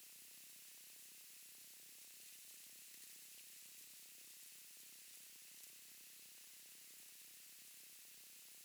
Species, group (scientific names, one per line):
Leptophyes punctatissima
Orthoptera